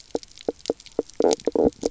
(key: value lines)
label: biophony, knock croak
recorder: SoundTrap 300